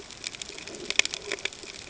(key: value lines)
label: ambient
recorder: HydroMoth